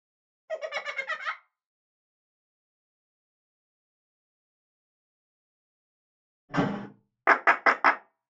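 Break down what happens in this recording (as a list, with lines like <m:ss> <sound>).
0:00 laughter can be heard
0:06 a door slams
0:07 you can hear clapping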